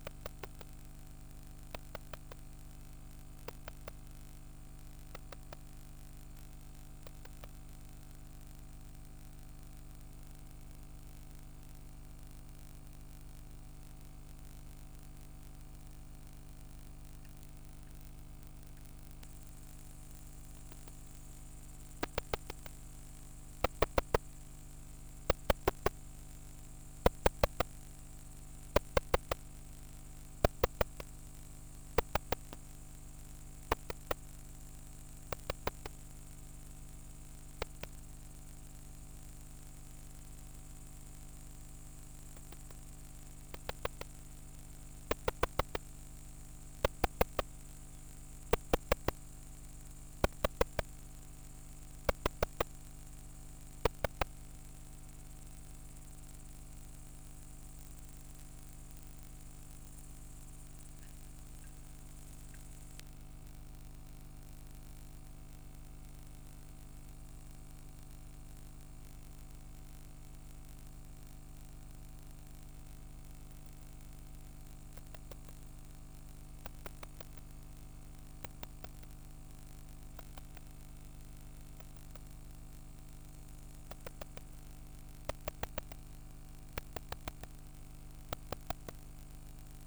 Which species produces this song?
Barbitistes serricauda